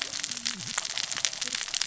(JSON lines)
{"label": "biophony, cascading saw", "recorder": "SoundTrap 600 or HydroMoth"}